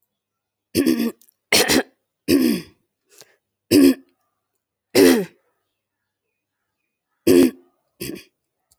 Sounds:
Throat clearing